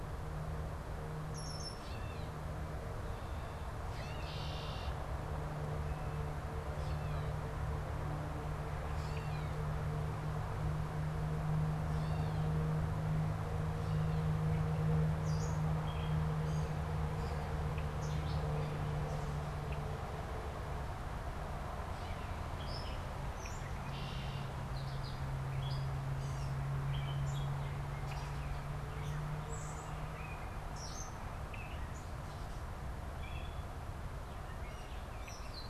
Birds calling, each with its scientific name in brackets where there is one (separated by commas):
Gray Catbird (Dumetella carolinensis), Red-winged Blackbird (Agelaius phoeniceus)